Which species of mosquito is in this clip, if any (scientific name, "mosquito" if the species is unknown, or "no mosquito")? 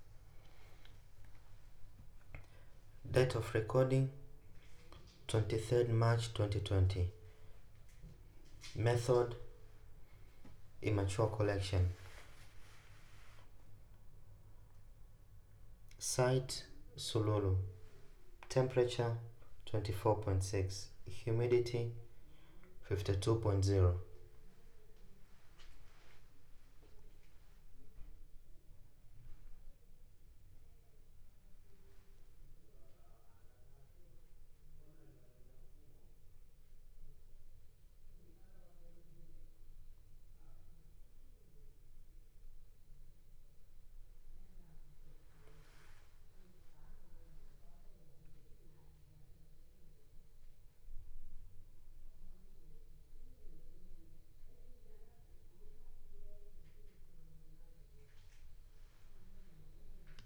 no mosquito